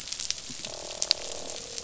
{"label": "biophony, croak", "recorder": "SoundTrap 500"}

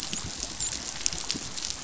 {"label": "biophony, dolphin", "recorder": "SoundTrap 500"}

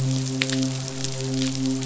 {"label": "biophony, midshipman", "recorder": "SoundTrap 500"}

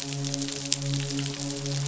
{"label": "biophony, midshipman", "recorder": "SoundTrap 500"}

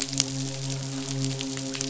{"label": "biophony, midshipman", "recorder": "SoundTrap 500"}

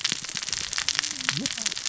{"label": "biophony, cascading saw", "recorder": "SoundTrap 600 or HydroMoth"}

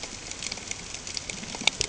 {"label": "ambient", "recorder": "HydroMoth"}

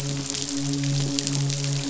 {"label": "biophony, midshipman", "recorder": "SoundTrap 500"}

